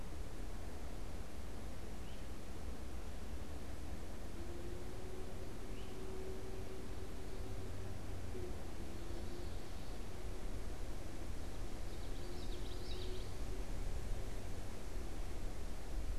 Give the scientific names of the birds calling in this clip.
unidentified bird, Geothlypis trichas